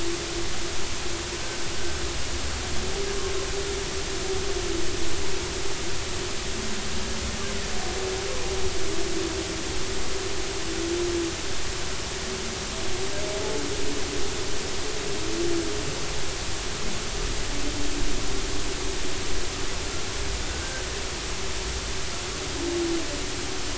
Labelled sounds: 20.5	20.9	humpback whale, 1.4 to 1.6 kHz

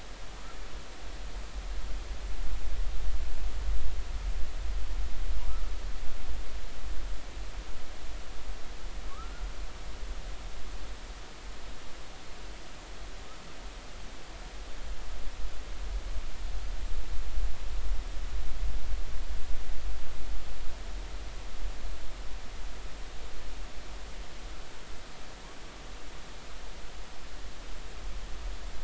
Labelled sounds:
9.1	9.4	humpback whale, 1.1 to 1.5 kHz

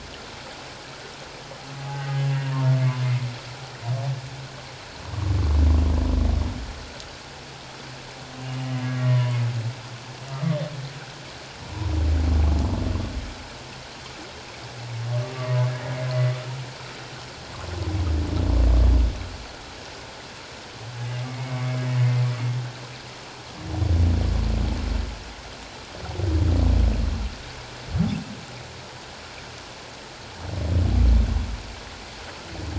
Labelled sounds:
1.8	3.1	humpback whale, 0.78 to 1.2 kHz
8.6	9.4	humpback whale, 0.84 to 2.1 kHz
10.3	10.6	humpback whale, 1.1 to 1.4 kHz
15.3	15.7	humpback whale, 0.84 to 1.2 kHz
21.2	21.8	humpback whale, 2.0 to 2.3 kHz

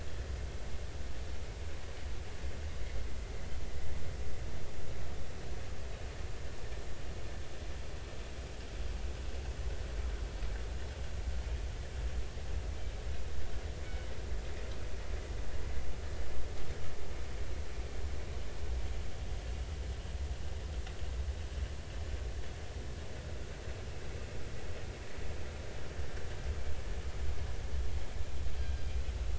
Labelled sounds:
28.6	28.8	killer whale, northern resident, 1.5 to 1.6 kHz

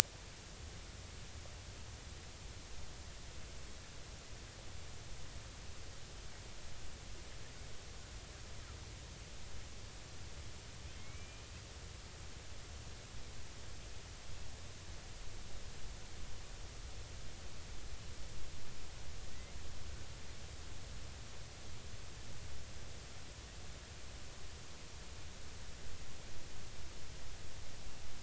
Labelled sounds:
11.0	11.4	killer whale, Bigg's (transient), 2.1 to 2.5 kHz
19.3	19.5	killer whale, Bigg's (transient), 1.9 to 2.2 kHz

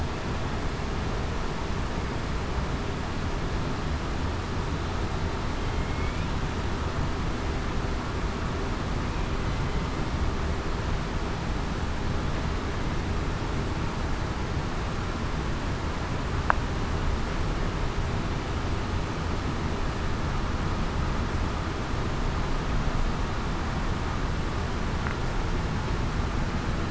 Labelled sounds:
5.8	6.3	killer whale, southern resident, 2.1 to 2.5 kHz

